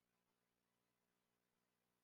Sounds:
Throat clearing